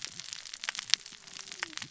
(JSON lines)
{"label": "biophony, cascading saw", "recorder": "SoundTrap 600 or HydroMoth"}